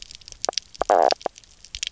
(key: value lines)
label: biophony, knock croak
recorder: SoundTrap 300